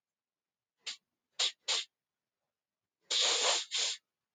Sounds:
Sniff